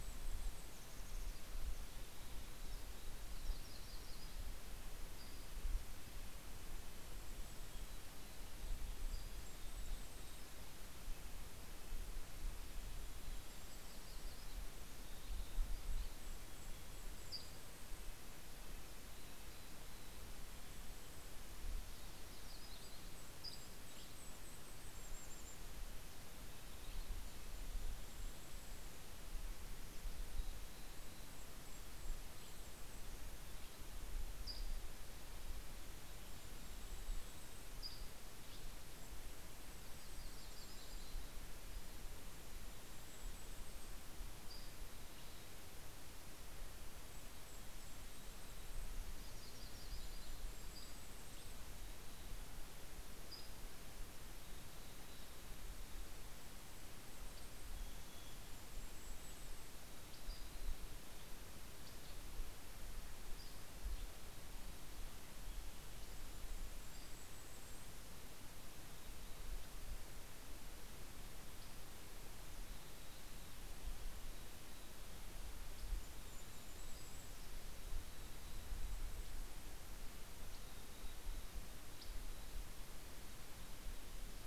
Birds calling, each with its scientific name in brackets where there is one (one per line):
Mountain Chickadee (Poecile gambeli)
Golden-crowned Kinglet (Regulus satrapa)
Red-breasted Nuthatch (Sitta canadensis)
Dusky Flycatcher (Empidonax oberholseri)
Yellow-rumped Warbler (Setophaga coronata)